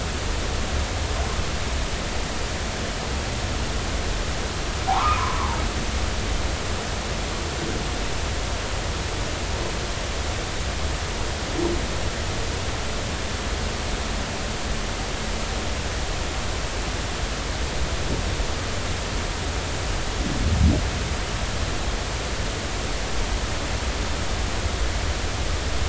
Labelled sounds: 4.9	5.5	humpback whale, 0.80 to 1.4 kHz

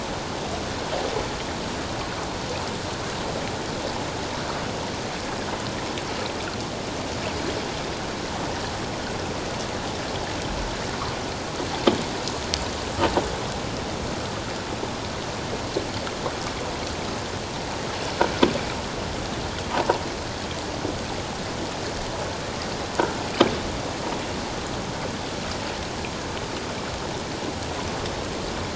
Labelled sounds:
19.7	20.0	croaking sound likely from a nearby submerged object, 0.84 to 1.0 kHz

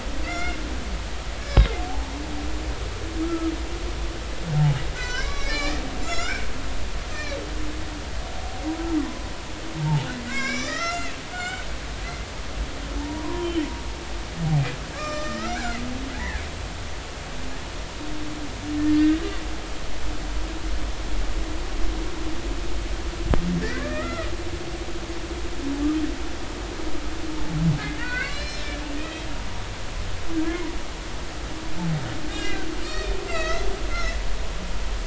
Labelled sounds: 0.2	0.6	humpback whale, 1.3 to 3.6 kHz
1.4	1.8	humpback whale, 2.0 to 5.7 kHz
3.2	3.5	humpback whale, 1.2 to 1.4 kHz
5.0	6.5	humpback whale, 1.2 to 7.3 kHz
7.1	7.4	humpback whale, 1.6 to 4.3 kHz
9.8	11.7	humpback whale, 0.83 to 7.6 kHz
13.0	13.6	humpback whale, 0.83 to 3.2 kHz
15.0	16.5	humpback whale, 1.1 to 7.4 kHz
19.0	19.2	humpback whale, 1.8 to 2.0 kHz
23.7	24.3	humpback whale, 1.0 to 2.1 kHz
28.0	29.3	humpback whale, 1.4 to 5.5 kHz
30.5	30.7	humpback whale, 0.93 to 1.1 kHz
32.3	34.2	humpback whale, 1.2 to 5.1 kHz

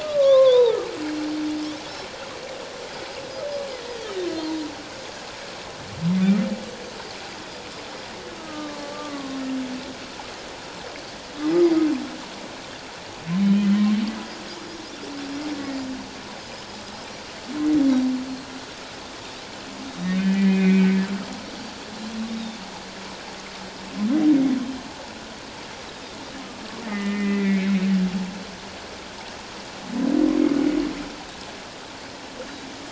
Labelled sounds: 0.0	0.8	humpback whale, 0.84 to 3.9 kHz
0.2	0.6	Pacific white-sided dolphin, 2.0 to 4.2 kHz
3.7	4.0	humpback whale, 1.8 to 2.2 kHz
8.4	9.4	humpback whale, 1.0 to 1.3 kHz
11.5	11.8	Pacific white-sided dolphin, 4.7 to 5.3 kHz
13.4	13.7	humpback whale, 2.9 to 3.1 kHz
19.9	21.0	humpback whale, 1.9 to 3.8 kHz
20.2	20.4	Pacific white-sided dolphin, 2.4 to 2.6 kHz
21.5	21.8	Pacific white-sided dolphin, 4.5 to 4.8 kHz
22.3	22.6	Pacific white-sided dolphin, 3.4 to 3.9 kHz
26.8	27.8	humpback whale, 1.2 to 2.5 kHz

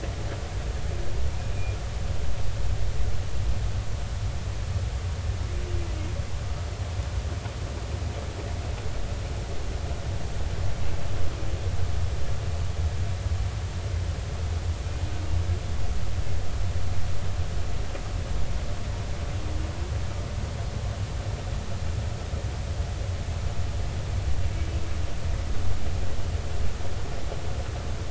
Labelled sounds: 1.5	1.8	humpback whale, 2.3 to 2.5 kHz

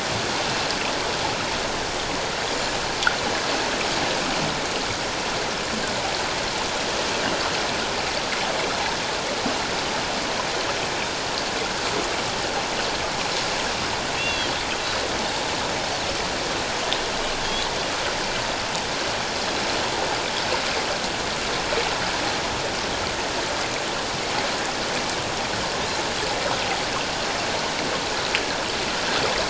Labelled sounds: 14.1	14.5	Pacific white-sided dolphin, 2.6 to 3.5 kHz

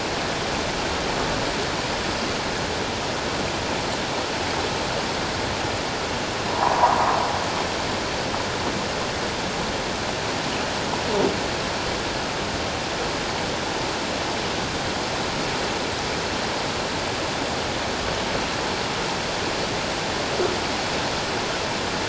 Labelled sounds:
6.5	7.2	sound from a nearby beach, 0.78 to 1.3 kHz

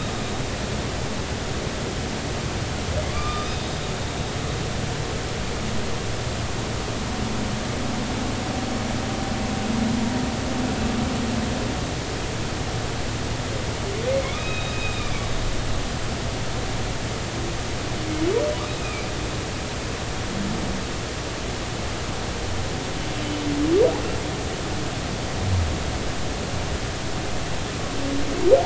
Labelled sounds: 3.1	3.7	humpback whale, 1.1 to 3.8 kHz
14.3	15.3	humpback whale, 2.2 to 3.9 kHz
18.8	19.1	humpback whale, 2.2 to 2.6 kHz

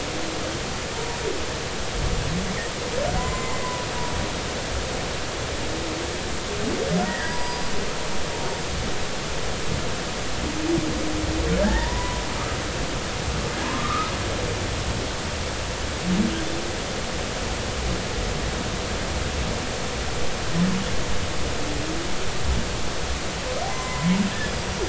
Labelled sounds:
0.9	1.2	humpback whale, 0.90 to 0.99 kHz
3.2	3.7	humpback whale, 0.96 to 7.2 kHz
7.1	7.6	humpback whale, 0.93 to 4.9 kHz
11.6	12.2	humpback whale, 0.83 to 2.0 kHz
13.6	14.1	humpback whale, 0.80 to 1.4 kHz
23.6	24.8	humpback whale, 0.80 to 7.2 kHz

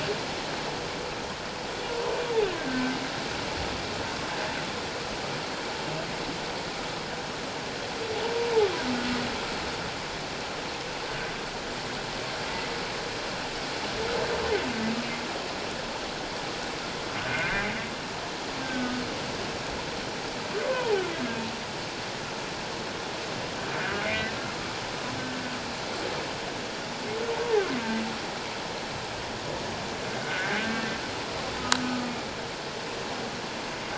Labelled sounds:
2.6	3.0	humpback whale, 1.5 to 1.7 kHz
17.2	17.7	humpback whale, 1.4 to 2.2 kHz
18.6	18.9	humpback whale, 1.4 to 1.6 kHz
20.6	21.0	humpback whale, 0.78 to 1.1 kHz
23.8	24.0	humpback whale, 1.4 to 1.7 kHz
30.2	30.6	humpback whale, 1.4 to 1.7 kHz
31.8	32.1	humpback whale, 1.2 to 1.3 kHz

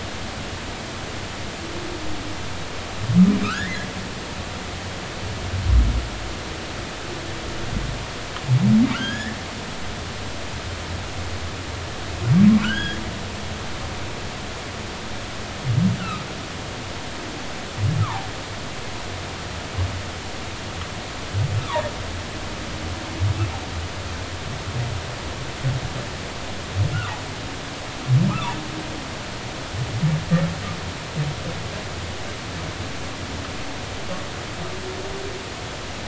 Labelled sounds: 3.4	3.9	humpback whale, 1.2 to 2.1 kHz
8.9	9.4	humpback whale, 1.3 to 3.5 kHz
12.6	13.0	humpback whale, 1.3 to 3.4 kHz
18.0	18.3	humpback whale, 0.80 to 1.4 kHz
21.6	21.8	humpback whale, 0.86 to 1.3 kHz
28.3	28.6	humpback whale, 0.83 to 1.4 kHz

